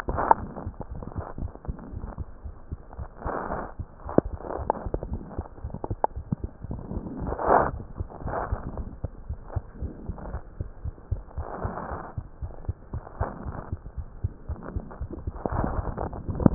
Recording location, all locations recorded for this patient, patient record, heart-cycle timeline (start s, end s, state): mitral valve (MV)
aortic valve (AV)+pulmonary valve (PV)+tricuspid valve (TV)+mitral valve (MV)
#Age: Child
#Sex: Male
#Height: 73.0 cm
#Weight: 8.775 kg
#Pregnancy status: False
#Murmur: Absent
#Murmur locations: nan
#Most audible location: nan
#Systolic murmur timing: nan
#Systolic murmur shape: nan
#Systolic murmur grading: nan
#Systolic murmur pitch: nan
#Systolic murmur quality: nan
#Diastolic murmur timing: nan
#Diastolic murmur shape: nan
#Diastolic murmur grading: nan
#Diastolic murmur pitch: nan
#Diastolic murmur quality: nan
#Outcome: Normal
#Campaign: 2015 screening campaign
0.00	8.66	unannotated
8.66	8.77	diastole
8.77	8.86	S1
8.86	9.00	systole
9.00	9.12	S2
9.12	9.28	diastole
9.28	9.38	S1
9.38	9.52	systole
9.52	9.64	S2
9.64	9.80	diastole
9.80	9.94	S1
9.94	10.07	systole
10.07	10.13	S2
10.13	10.32	diastole
10.32	10.42	S1
10.42	10.58	systole
10.58	10.65	S2
10.65	10.84	diastole
10.84	10.94	S1
10.94	11.08	systole
11.08	11.22	S2
11.22	11.36	diastole
11.36	11.46	S1
11.46	11.60	systole
11.60	11.74	S2
11.74	11.90	diastole
11.90	12.02	S1
12.02	12.16	systole
12.16	12.26	S2
12.26	12.42	diastole
12.42	12.52	S1
12.52	12.66	systole
12.66	12.80	S2
12.80	12.94	diastole
12.94	13.04	S1
13.04	13.16	systole
13.16	13.30	S2
13.30	13.46	diastole
13.46	13.58	S1
13.58	13.68	systole
13.68	13.82	S2
13.82	13.98	diastole
13.98	14.08	S1
14.08	14.23	systole
14.23	14.29	S2
14.29	14.50	diastole
14.50	14.60	S1
14.60	14.74	systole
14.74	14.86	S2
14.86	15.02	diastole
15.02	15.12	S1
15.12	15.19	systole
15.19	16.54	unannotated